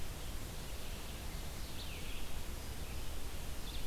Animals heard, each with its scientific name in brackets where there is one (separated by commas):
Red-eyed Vireo (Vireo olivaceus)